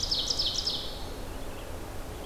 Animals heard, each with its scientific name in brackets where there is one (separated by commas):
Ovenbird (Seiurus aurocapilla), Red-eyed Vireo (Vireo olivaceus)